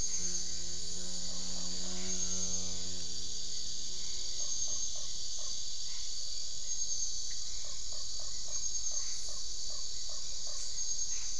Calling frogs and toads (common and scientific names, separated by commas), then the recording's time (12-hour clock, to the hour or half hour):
Usina tree frog (Boana lundii)
7pm